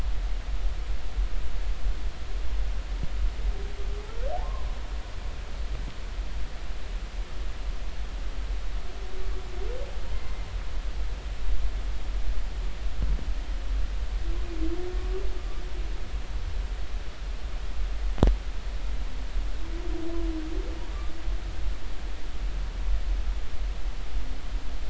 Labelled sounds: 4.4	4.7	humpback whale, 0.93 to 1.2 kHz

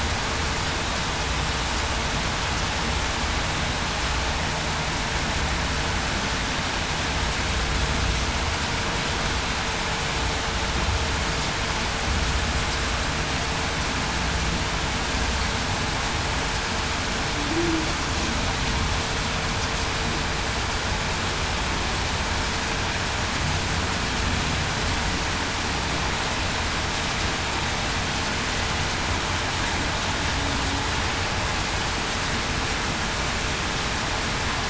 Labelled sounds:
17.5	17.9	humpback whale, 0.30 to 0.38 kHz

